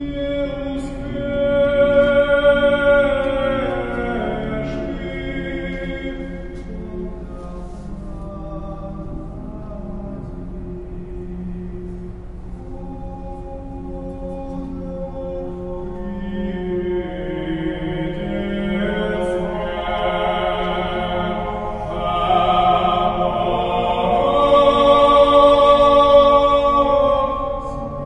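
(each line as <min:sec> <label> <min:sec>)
0:00.0 A church choir of men singing. 0:28.1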